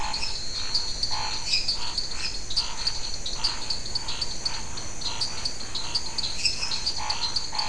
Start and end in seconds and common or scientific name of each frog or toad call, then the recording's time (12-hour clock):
0.0	1.7	lesser tree frog
0.0	7.6	dwarf tree frog
0.0	7.6	Scinax fuscovarius
6.3	7.2	lesser tree frog
8:15pm